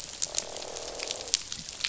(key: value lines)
label: biophony, croak
recorder: SoundTrap 500